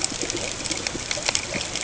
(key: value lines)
label: ambient
recorder: HydroMoth